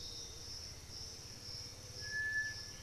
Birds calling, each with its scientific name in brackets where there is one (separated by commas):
Black-billed Thrush (Turdus ignobilis), Piratic Flycatcher (Legatus leucophaius), Thrush-like Wren (Campylorhynchus turdinus)